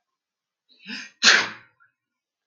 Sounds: Sneeze